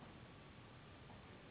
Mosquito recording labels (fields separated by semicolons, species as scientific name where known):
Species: Anopheles gambiae s.s.; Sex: female; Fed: unfed; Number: one; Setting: insect culture